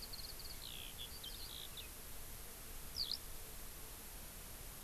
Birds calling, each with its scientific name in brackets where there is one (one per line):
Eurasian Skylark (Alauda arvensis)